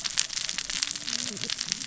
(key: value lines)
label: biophony, cascading saw
recorder: SoundTrap 600 or HydroMoth